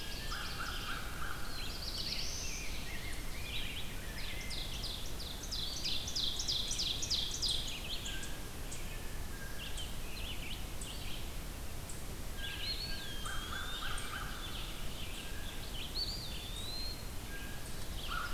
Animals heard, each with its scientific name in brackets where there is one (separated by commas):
Blue Jay (Cyanocitta cristata), Red-eyed Vireo (Vireo olivaceus), American Crow (Corvus brachyrhynchos), Ovenbird (Seiurus aurocapilla), Black-throated Blue Warbler (Setophaga caerulescens), Veery (Catharus fuscescens), Rose-breasted Grosbeak (Pheucticus ludovicianus), Eastern Wood-Pewee (Contopus virens)